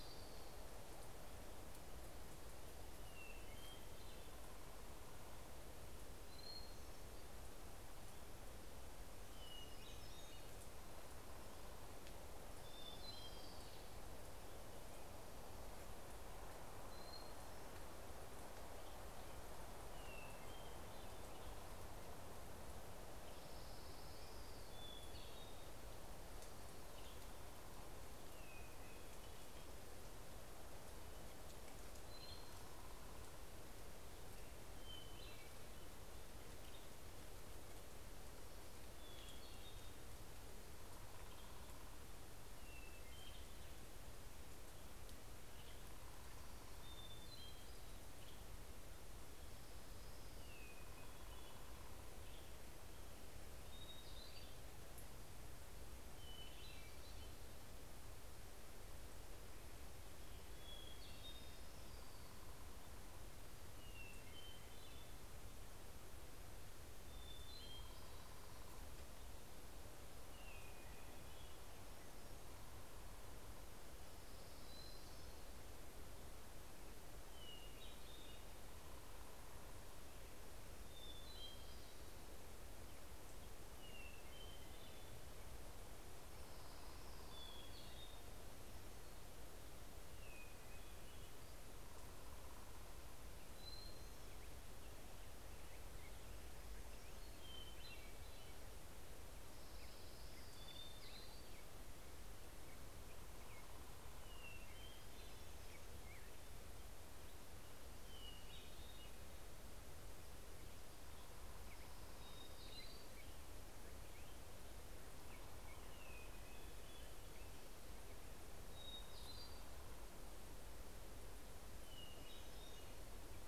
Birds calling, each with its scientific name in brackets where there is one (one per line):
Hermit Thrush (Catharus guttatus)
Orange-crowned Warbler (Leiothlypis celata)
Hermit Warbler (Setophaga occidentalis)
Black-headed Grosbeak (Pheucticus melanocephalus)